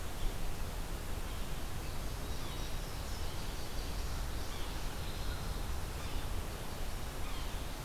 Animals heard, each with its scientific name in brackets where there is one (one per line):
Indigo Bunting (Passerina cyanea)
Yellow-bellied Sapsucker (Sphyrapicus varius)